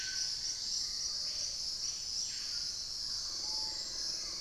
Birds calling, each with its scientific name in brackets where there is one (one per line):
Hauxwell's Thrush (Turdus hauxwelli)
Wing-barred Piprites (Piprites chloris)
Screaming Piha (Lipaugus vociferans)